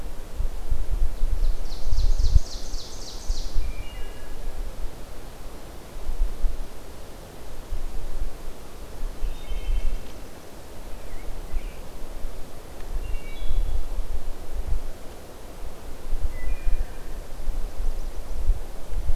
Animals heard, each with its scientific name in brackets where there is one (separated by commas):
American Robin (Turdus migratorius), Wood Thrush (Hylocichla mustelina), Ovenbird (Seiurus aurocapilla)